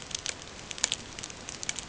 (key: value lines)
label: ambient
recorder: HydroMoth